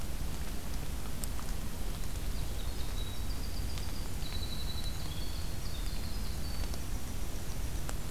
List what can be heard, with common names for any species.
Winter Wren